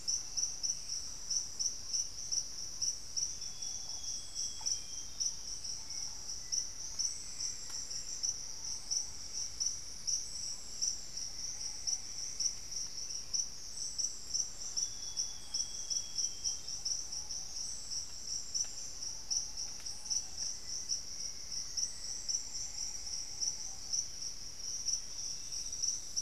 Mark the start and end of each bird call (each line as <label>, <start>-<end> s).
Thrush-like Wren (Campylorhynchus turdinus), 0.0-4.5 s
Ruddy Pigeon (Patagioenas subvinacea), 0.0-26.2 s
Amazonian Grosbeak (Cyanoloxia rothschildii), 3.3-5.5 s
Black-faced Antthrush (Formicarius analis), 6.1-8.6 s
Cinnamon-throated Woodcreeper (Dendrexetastes rufigula), 8.2-13.4 s
Amazonian Grosbeak (Cyanoloxia rothschildii), 14.7-16.9 s
Black-faced Antthrush (Formicarius analis), 20.2-22.7 s
Plumbeous Antbird (Myrmelastes hyperythrus), 22.2-24.3 s
Olivaceous Woodcreeper (Sittasomus griseicapillus), 24.7-26.2 s